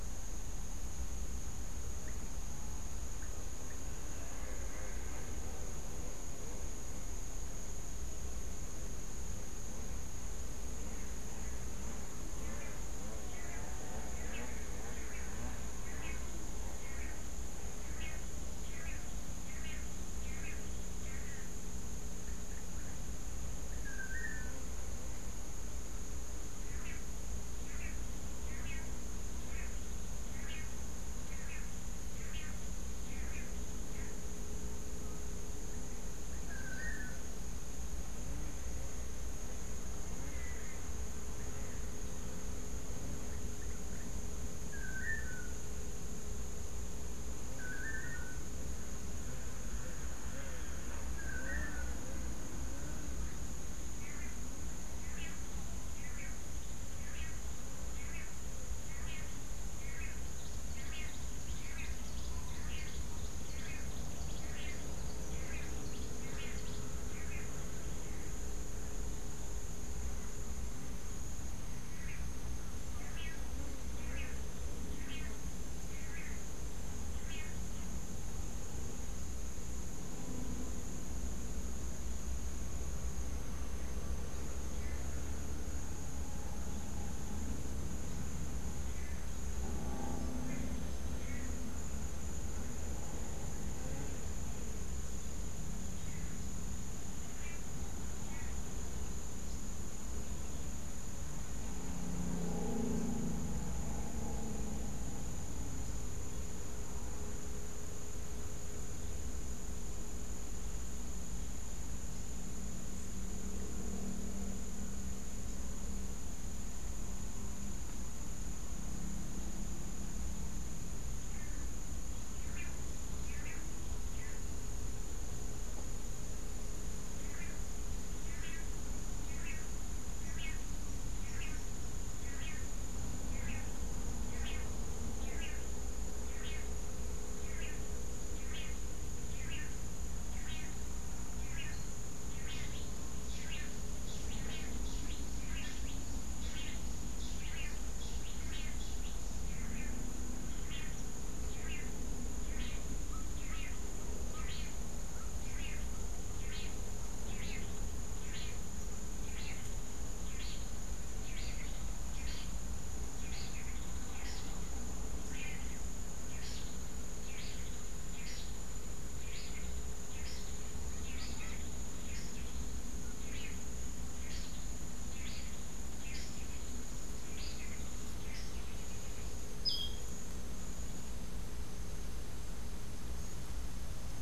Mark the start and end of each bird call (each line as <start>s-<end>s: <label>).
1.8s-3.9s: Long-tailed Manakin (Chiroxiphia linearis)
12.3s-24.7s: Long-tailed Manakin (Chiroxiphia linearis)
26.6s-37.3s: Long-tailed Manakin (Chiroxiphia linearis)
43.0s-48.6s: Long-tailed Manakin (Chiroxiphia linearis)
51.1s-67.8s: Long-tailed Manakin (Chiroxiphia linearis)
71.9s-78.1s: Long-tailed Manakin (Chiroxiphia linearis)
84.7s-85.2s: Long-tailed Manakin (Chiroxiphia linearis)
88.7s-91.7s: Long-tailed Manakin (Chiroxiphia linearis)
96.0s-98.7s: Long-tailed Manakin (Chiroxiphia linearis)
121.1s-157.5s: Long-tailed Manakin (Chiroxiphia linearis)
142.4s-149.4s: Cabanis's Wren (Cantorchilus modestus)
153.0s-156.1s: Gray-headed Chachalaca (Ortalis cinereiceps)
158.2s-158.7s: Long-tailed Manakin (Chiroxiphia linearis)
159.2s-164.6s: Long-tailed Manakin (Chiroxiphia linearis)
165.2s-172.6s: Long-tailed Manakin (Chiroxiphia linearis)
173.1s-173.8s: Long-tailed Manakin (Chiroxiphia linearis)
174.1s-177.6s: Long-tailed Manakin (Chiroxiphia linearis)
179.6s-180.2s: Clay-colored Thrush (Turdus grayi)